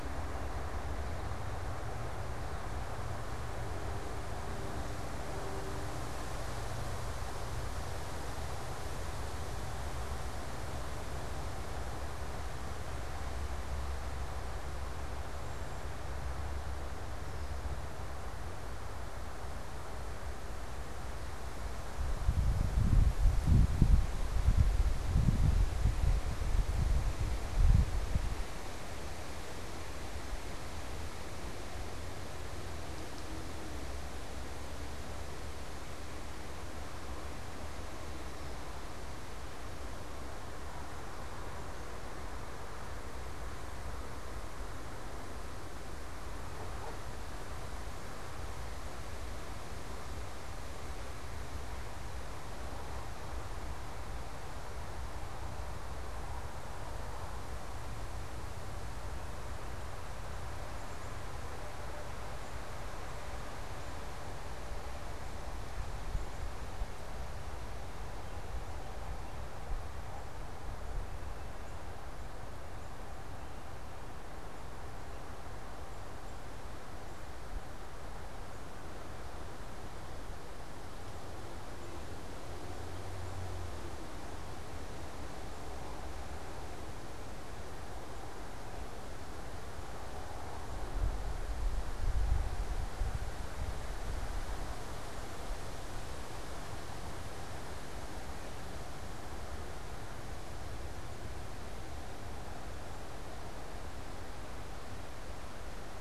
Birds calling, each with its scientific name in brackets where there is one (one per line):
Cedar Waxwing (Bombycilla cedrorum)
American Goldfinch (Spinus tristis)
Black-capped Chickadee (Poecile atricapillus)